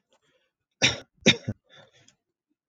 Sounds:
Cough